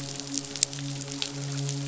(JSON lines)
{"label": "biophony, midshipman", "recorder": "SoundTrap 500"}